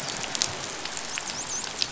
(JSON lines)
{"label": "biophony, dolphin", "recorder": "SoundTrap 500"}